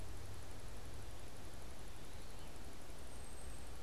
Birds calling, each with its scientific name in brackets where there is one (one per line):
American Robin (Turdus migratorius)